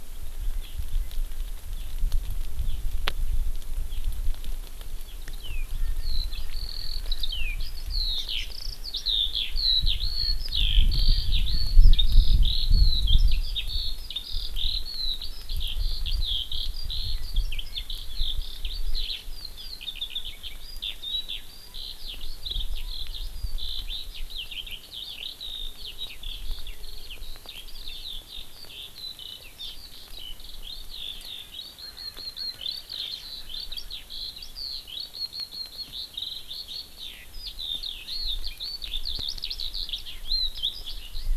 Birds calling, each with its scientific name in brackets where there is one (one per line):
Erckel's Francolin (Pternistis erckelii)
Eurasian Skylark (Alauda arvensis)